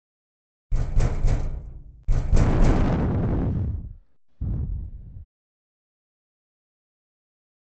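At 0.69 seconds, knocking can be heard. Over it, at 2.29 seconds, there is wind.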